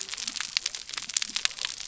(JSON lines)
{"label": "biophony", "recorder": "SoundTrap 300"}